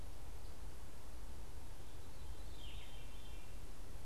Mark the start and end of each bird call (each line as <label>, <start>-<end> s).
Yellow-throated Vireo (Vireo flavifrons), 0.0-3.0 s
Eastern Phoebe (Sayornis phoebe), 0.0-4.0 s
Veery (Catharus fuscescens), 0.0-4.0 s